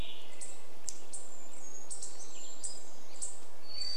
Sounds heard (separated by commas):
Hermit Thrush song, unidentified bird chip note